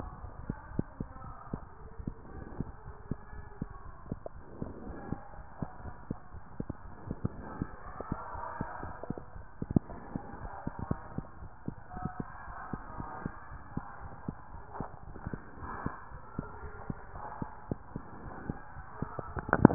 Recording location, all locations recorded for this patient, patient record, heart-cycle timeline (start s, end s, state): mitral valve (MV)
aortic valve (AV)+pulmonary valve (PV)+tricuspid valve (TV)+mitral valve (MV)
#Age: Child
#Sex: Male
#Height: 108.0 cm
#Weight: 24.7 kg
#Pregnancy status: False
#Murmur: Absent
#Murmur locations: nan
#Most audible location: nan
#Systolic murmur timing: nan
#Systolic murmur shape: nan
#Systolic murmur grading: nan
#Systolic murmur pitch: nan
#Systolic murmur quality: nan
#Diastolic murmur timing: nan
#Diastolic murmur shape: nan
#Diastolic murmur grading: nan
#Diastolic murmur pitch: nan
#Diastolic murmur quality: nan
#Outcome: Normal
#Campaign: 2015 screening campaign
0.00	11.02	unannotated
11.02	11.14	systole
11.14	11.26	S2
11.26	11.42	diastole
11.42	11.50	S1
11.50	11.66	systole
11.66	11.78	S2
11.78	11.94	diastole
11.94	12.09	S1
12.09	12.16	systole
12.16	12.30	S2
12.30	12.45	diastole
12.45	12.56	S1
12.56	12.72	systole
12.72	12.82	S2
12.82	12.96	diastole
12.96	13.10	S1
13.10	13.20	systole
13.20	13.32	S2
13.32	13.50	diastole
13.50	13.62	S1
13.62	13.72	systole
13.72	13.86	S2
13.86	13.99	diastole
13.99	14.12	S1
14.12	14.26	systole
14.26	14.38	S2
14.38	14.51	diastole
14.51	14.62	S1
14.62	14.76	systole
14.76	14.88	S2
14.88	15.08	diastole
15.08	15.20	S1
15.20	15.31	systole
15.31	15.44	S2
15.44	15.60	diastole
15.60	15.72	S1
15.72	15.82	systole
15.82	15.94	S2
15.94	16.11	diastole
16.11	16.23	S1
16.23	16.36	systole
16.36	16.50	S2
16.50	16.60	diastole
16.60	16.72	S1
16.72	16.85	systole
16.85	16.98	S2
16.98	17.14	diastole
17.14	17.26	S1
17.26	17.36	systole
17.36	17.50	S2
17.50	17.68	diastole
17.68	17.80	S1
17.80	17.92	systole
17.92	18.04	S2
18.04	18.20	diastole
18.20	18.34	S1
18.34	18.46	systole
18.46	18.58	S2
18.58	18.76	diastole
18.76	19.74	unannotated